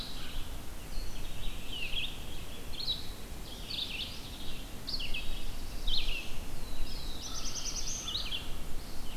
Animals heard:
Red-eyed Vireo (Vireo olivaceus)
American Crow (Corvus brachyrhynchos)
Black-throated Blue Warbler (Setophaga caerulescens)

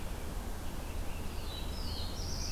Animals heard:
Black-throated Blue Warbler (Setophaga caerulescens)
Blue-headed Vireo (Vireo solitarius)
Scarlet Tanager (Piranga olivacea)
Red-eyed Vireo (Vireo olivaceus)

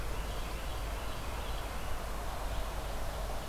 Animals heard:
Carolina Wren (Thryothorus ludovicianus)
Red-eyed Vireo (Vireo olivaceus)

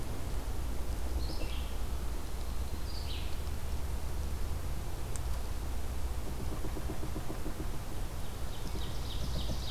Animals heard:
Red-eyed Vireo (Vireo olivaceus)
Ovenbird (Seiurus aurocapilla)

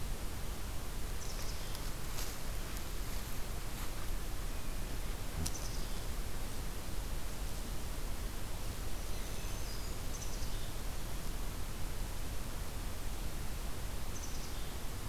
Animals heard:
Black-throated Green Warbler (Setophaga virens)
Black-capped Chickadee (Poecile atricapillus)

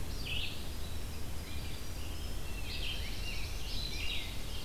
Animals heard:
Red-eyed Vireo (Vireo olivaceus)
Rose-breasted Grosbeak (Pheucticus ludovicianus)
Black-throated Blue Warbler (Setophaga caerulescens)
Winter Wren (Troglodytes hiemalis)

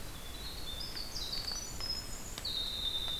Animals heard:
Winter Wren (Troglodytes hiemalis)

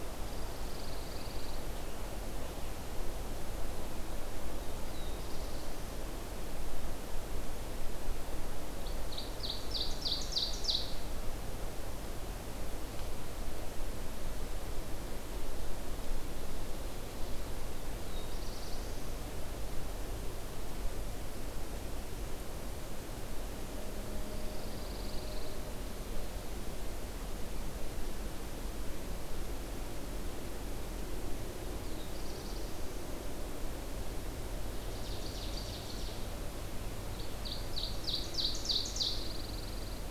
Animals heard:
Pine Warbler (Setophaga pinus)
Black-throated Blue Warbler (Setophaga caerulescens)
Ovenbird (Seiurus aurocapilla)

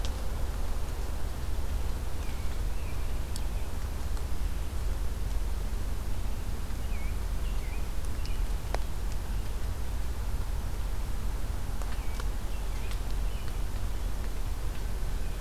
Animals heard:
American Robin (Turdus migratorius)

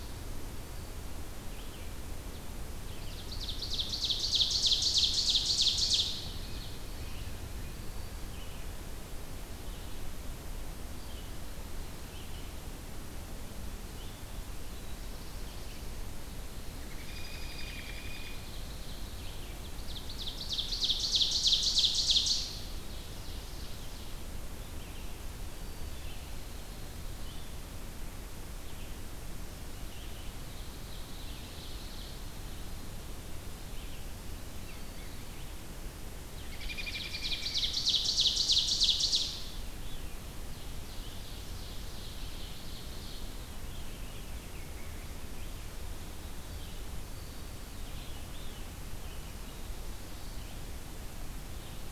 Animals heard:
Veery (Catharus fuscescens)
Ovenbird (Seiurus aurocapilla)
American Robin (Turdus migratorius)

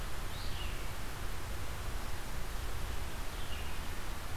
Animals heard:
Red-eyed Vireo (Vireo olivaceus)

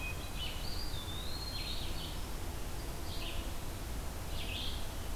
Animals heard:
Eastern Wood-Pewee (Contopus virens)
Red-eyed Vireo (Vireo olivaceus)

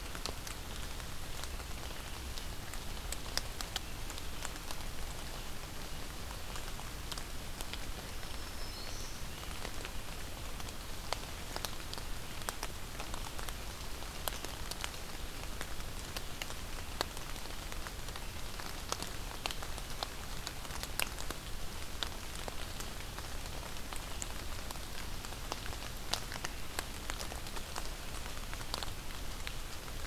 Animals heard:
Black-throated Green Warbler (Setophaga virens)

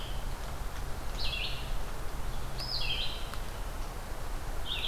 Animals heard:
Red-eyed Vireo (Vireo olivaceus)

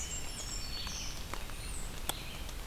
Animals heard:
Black-throated Green Warbler (Setophaga virens)
Red-eyed Vireo (Vireo olivaceus)
American Robin (Turdus migratorius)
Blackburnian Warbler (Setophaga fusca)

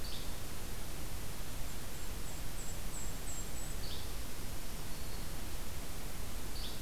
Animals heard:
Yellow-bellied Flycatcher (Empidonax flaviventris)
Black-throated Green Warbler (Setophaga virens)
Golden-crowned Kinglet (Regulus satrapa)

